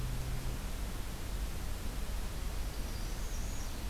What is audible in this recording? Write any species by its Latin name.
Setophaga americana